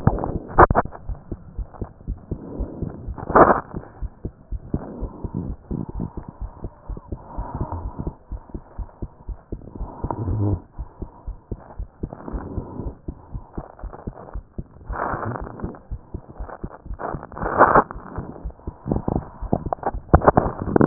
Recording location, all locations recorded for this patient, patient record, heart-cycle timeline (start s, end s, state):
pulmonary valve (PV)
aortic valve (AV)+pulmonary valve (PV)+tricuspid valve (TV)+mitral valve (MV)
#Age: Child
#Sex: Male
#Height: 129.0 cm
#Weight: 21.0 kg
#Pregnancy status: False
#Murmur: Absent
#Murmur locations: nan
#Most audible location: nan
#Systolic murmur timing: nan
#Systolic murmur shape: nan
#Systolic murmur grading: nan
#Systolic murmur pitch: nan
#Systolic murmur quality: nan
#Diastolic murmur timing: nan
#Diastolic murmur shape: nan
#Diastolic murmur grading: nan
#Diastolic murmur pitch: nan
#Diastolic murmur quality: nan
#Outcome: Normal
#Campaign: 2015 screening campaign
0.00	4.00	unannotated
4.00	4.12	S1
4.12	4.22	systole
4.22	4.32	S2
4.32	4.52	diastole
4.52	4.62	S1
4.62	4.72	systole
4.72	4.82	S2
4.82	5.00	diastole
5.00	5.14	S1
5.14	5.22	systole
5.22	5.32	S2
5.32	5.48	diastole
5.48	5.60	S1
5.60	5.68	systole
5.68	5.80	S2
5.80	5.93	diastole
5.93	6.05	S1
6.05	6.14	systole
6.14	6.24	S2
6.24	6.42	diastole
6.42	6.52	S1
6.52	6.62	systole
6.62	6.72	S2
6.72	6.90	diastole
6.90	7.02	S1
7.02	7.10	systole
7.10	7.20	S2
7.20	7.36	diastole
7.36	7.46	S1
7.46	7.53	systole
7.53	7.59	S2
7.59	7.83	diastole
7.83	7.92	S1
7.92	8.03	systole
8.03	8.14	S2
8.14	8.30	diastole
8.30	8.42	S1
8.42	8.50	systole
8.50	8.62	S2
8.62	8.78	diastole
8.78	8.88	S1
8.88	9.00	systole
9.00	9.10	S2
9.10	9.28	diastole
9.28	9.38	S1
9.38	9.50	systole
9.50	9.60	S2
9.60	9.80	diastole
9.80	9.90	S1
9.90	10.01	systole
10.01	10.08	S2
10.08	20.86	unannotated